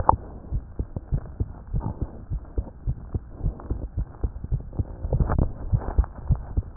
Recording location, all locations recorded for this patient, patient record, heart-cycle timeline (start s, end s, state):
aortic valve (AV)
aortic valve (AV)+aortic valve (AV)+aortic valve (AV)+mitral valve (MV)
#Age: Child
#Sex: Male
#Height: 99.0 cm
#Weight: 15.5 kg
#Pregnancy status: False
#Murmur: Absent
#Murmur locations: nan
#Most audible location: nan
#Systolic murmur timing: nan
#Systolic murmur shape: nan
#Systolic murmur grading: nan
#Systolic murmur pitch: nan
#Systolic murmur quality: nan
#Diastolic murmur timing: nan
#Diastolic murmur shape: nan
#Diastolic murmur grading: nan
#Diastolic murmur pitch: nan
#Diastolic murmur quality: nan
#Outcome: Normal
#Campaign: 2014 screening campaign
0.00	1.02	unannotated
1.02	1.12	diastole
1.12	1.22	S1
1.22	1.38	systole
1.38	1.48	S2
1.48	1.74	diastole
1.74	1.85	S1
1.85	2.00	systole
2.00	2.08	S2
2.08	2.30	diastole
2.30	2.42	S1
2.42	2.56	systole
2.56	2.66	S2
2.66	2.86	diastole
2.86	2.96	S1
2.96	3.12	systole
3.12	3.22	S2
3.22	3.44	diastole
3.44	3.54	S1
3.54	3.70	systole
3.70	3.80	S2
3.80	3.98	diastole
3.98	4.08	S1
4.08	4.22	systole
4.22	4.32	S2
4.32	4.52	diastole
4.52	4.62	S1
4.62	4.78	systole
4.78	4.86	S2
4.86	5.11	diastole
5.11	6.77	unannotated